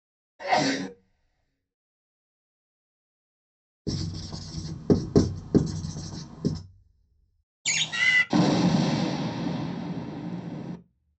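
At 0.4 seconds, someone sneezes. After that, at 3.9 seconds, writing can be heard. Next, at 7.7 seconds, a bird is heard. Later, at 8.3 seconds, thunder is audible.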